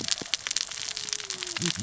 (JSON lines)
{"label": "biophony, cascading saw", "recorder": "SoundTrap 600 or HydroMoth"}